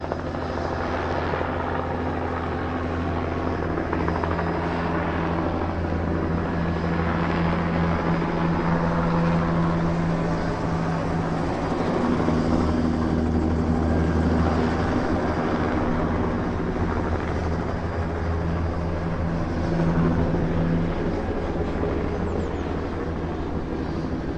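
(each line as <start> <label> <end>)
0.0 A helicopter flying close by. 24.4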